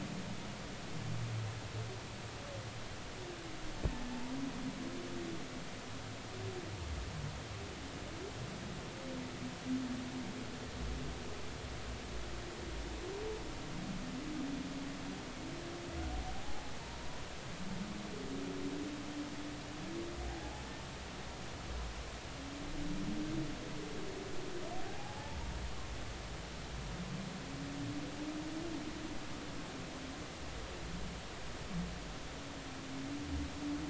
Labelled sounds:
16.3	17.2	humpback whale, 0.80 to 1.0 kHz
20.3	20.7	humpback whale, 0.80 to 0.90 kHz
24.8	25.4	humpback whale, 0.80 to 0.96 kHz

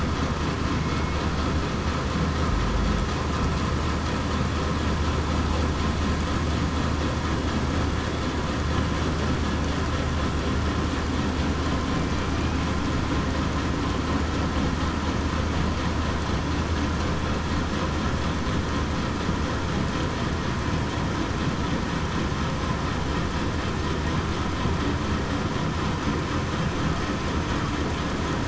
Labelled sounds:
0.8	1.2	killer whale, southern resident, 2.16 to 2.20 kHz

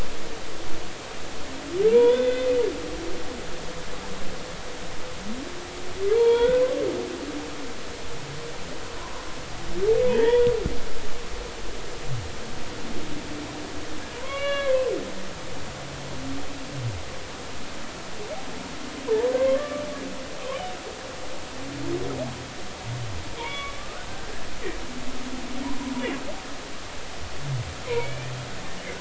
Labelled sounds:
1.9	2.5	humpback whale, 0.90 to 3.6 kHz
6.1	6.6	humpback whale, 0.83 to 3.4 kHz
10.0	10.5	humpback whale, 0.86 to 3.5 kHz
14.1	14.8	humpback whale, 0.93 to 4.0 kHz
19.1	19.8	humpback whale, 0.83 to 2.2 kHz
23.4	24.5	humpback whale, 0.86 to 2.4 kHz
27.8	28.3	humpback whale, 2.1 to 2.5 kHz

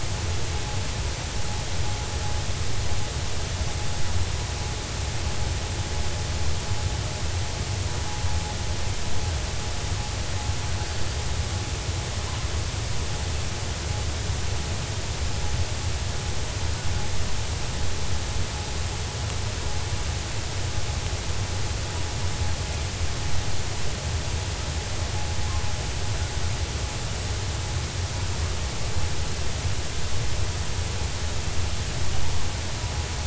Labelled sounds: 10.8	11.1	killer whale, 4.3 to 4.6 kHz

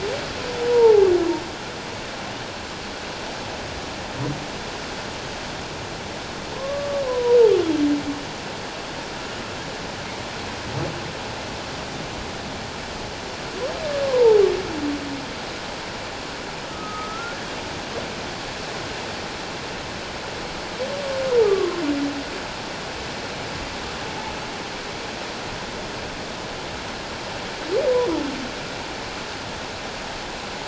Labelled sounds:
6.6	7.4	humpback whale, 0.91 to 1.2 kHz
14.0	14.4	humpback whale, 0.81 to 1.1 kHz
16.7	17.4	humpback whale, 1.2 to 1.5 kHz
21.4	21.8	humpback whale, 1.0 to 1.3 kHz

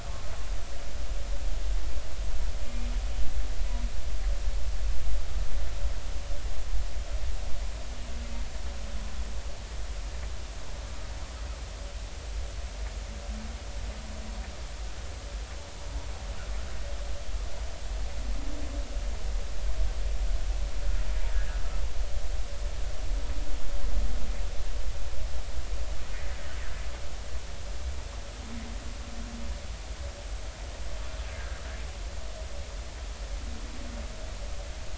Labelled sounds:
31.4	31.6	humpback whale, 1.5 to 1.8 kHz

